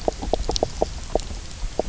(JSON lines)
{"label": "biophony, knock croak", "recorder": "SoundTrap 300"}